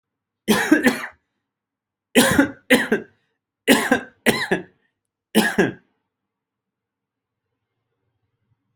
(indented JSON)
{
  "expert_labels": [
    {
      "quality": "ok",
      "cough_type": "dry",
      "dyspnea": false,
      "wheezing": false,
      "stridor": false,
      "choking": false,
      "congestion": false,
      "nothing": true,
      "diagnosis": "COVID-19",
      "severity": "mild"
    }
  ],
  "age": 42,
  "gender": "male",
  "respiratory_condition": false,
  "fever_muscle_pain": false,
  "status": "symptomatic"
}